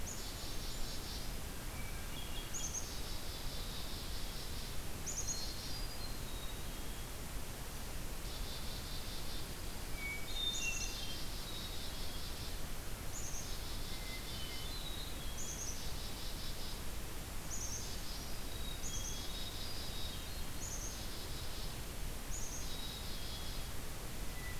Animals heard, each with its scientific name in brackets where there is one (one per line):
Black-capped Chickadee (Poecile atricapillus)
Brown Creeper (Certhia americana)
Hermit Thrush (Catharus guttatus)
Dark-eyed Junco (Junco hyemalis)